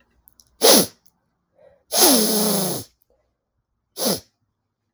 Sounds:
Sniff